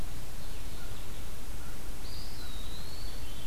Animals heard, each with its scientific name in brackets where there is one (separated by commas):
Eastern Wood-Pewee (Contopus virens)